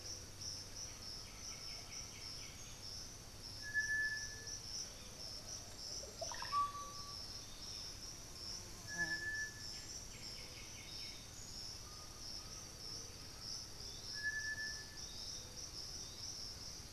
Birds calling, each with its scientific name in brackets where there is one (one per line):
White-winged Becard (Pachyramphus polychopterus)
Yellow-tufted Woodpecker (Melanerpes cruentatus)
Russet-backed Oropendola (Psarocolius angustifrons)
Undulated Tinamou (Crypturellus undulatus)
unidentified bird
Piratic Flycatcher (Legatus leucophaius)
Plumbeous Pigeon (Patagioenas plumbea)